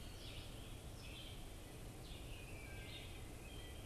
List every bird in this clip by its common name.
American Robin, Red-eyed Vireo, Wood Thrush